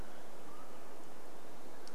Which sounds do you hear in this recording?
Olive-sided Flycatcher call, Western Wood-Pewee song, unidentified sound